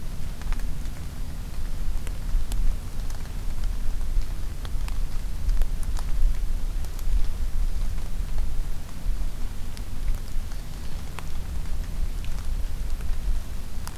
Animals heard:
forest ambience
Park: Acadia National Park